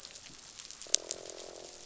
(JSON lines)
{"label": "biophony, croak", "recorder": "SoundTrap 500"}